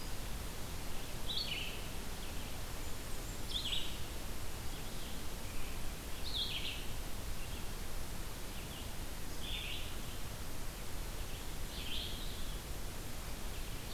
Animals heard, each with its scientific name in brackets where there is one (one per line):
Red-eyed Vireo (Vireo olivaceus)
Blackburnian Warbler (Setophaga fusca)